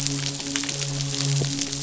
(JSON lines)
{"label": "biophony, midshipman", "recorder": "SoundTrap 500"}